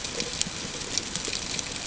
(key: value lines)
label: ambient
recorder: HydroMoth